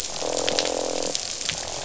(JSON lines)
{"label": "biophony, croak", "recorder": "SoundTrap 500"}